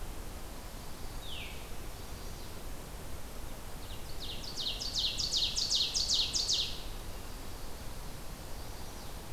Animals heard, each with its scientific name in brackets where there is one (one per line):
Chestnut-sided Warbler (Setophaga pensylvanica)
Ovenbird (Seiurus aurocapilla)
Veery (Catharus fuscescens)